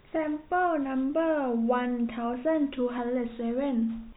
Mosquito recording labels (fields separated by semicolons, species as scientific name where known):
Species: no mosquito; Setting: cup